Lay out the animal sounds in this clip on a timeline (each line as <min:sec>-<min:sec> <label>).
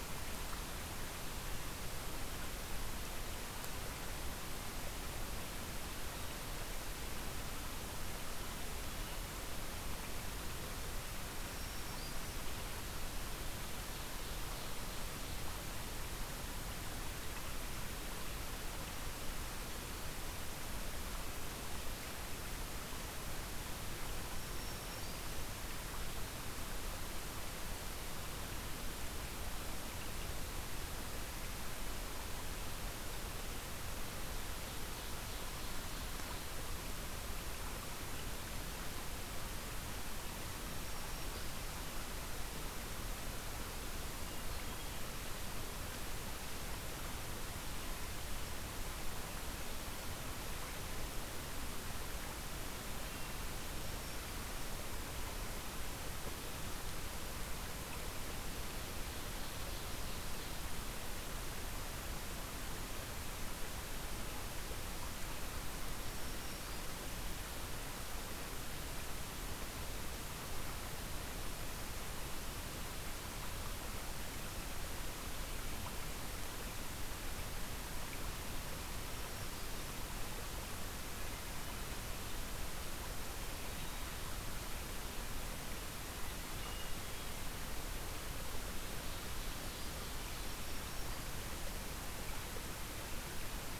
0:11.4-0:12.5 Black-throated Green Warbler (Setophaga virens)
0:13.6-0:15.1 Ovenbird (Seiurus aurocapilla)
0:24.2-0:25.4 Black-throated Green Warbler (Setophaga virens)
0:34.1-0:36.6 Ovenbird (Seiurus aurocapilla)
0:40.6-0:41.6 Black-throated Green Warbler (Setophaga virens)
0:44.1-0:45.0 Hermit Thrush (Catharus guttatus)
0:52.8-0:53.6 Hermit Thrush (Catharus guttatus)
0:53.5-0:54.4 Black-throated Green Warbler (Setophaga virens)
0:58.8-1:00.6 Ovenbird (Seiurus aurocapilla)
1:05.8-1:06.9 Black-throated Green Warbler (Setophaga virens)
1:18.9-1:20.0 Black-throated Green Warbler (Setophaga virens)
1:26.4-1:27.4 Hermit Thrush (Catharus guttatus)
1:28.8-1:30.6 Ovenbird (Seiurus aurocapilla)
1:30.5-1:31.3 Black-throated Green Warbler (Setophaga virens)